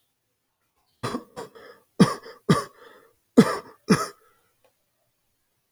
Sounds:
Cough